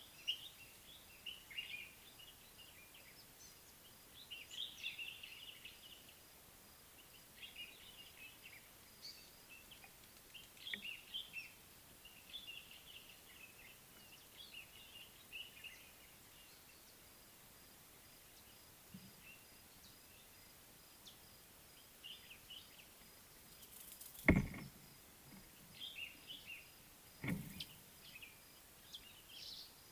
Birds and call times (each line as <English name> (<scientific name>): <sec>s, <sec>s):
Common Bulbul (Pycnonotus barbatus): 4.7s, 11.0s, 26.1s
Mariqua Sunbird (Cinnyris mariquensis): 27.6s